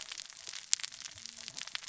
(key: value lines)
label: biophony, cascading saw
recorder: SoundTrap 600 or HydroMoth